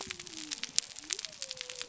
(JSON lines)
{"label": "biophony", "recorder": "SoundTrap 300"}